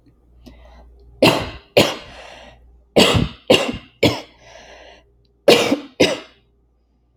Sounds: Cough